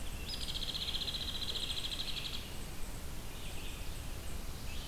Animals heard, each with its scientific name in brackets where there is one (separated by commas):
Hairy Woodpecker (Dryobates villosus), Red-eyed Vireo (Vireo olivaceus)